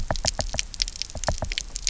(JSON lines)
{"label": "biophony, knock", "recorder": "SoundTrap 300"}